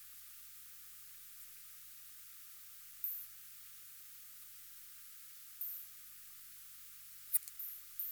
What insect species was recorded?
Poecilimon affinis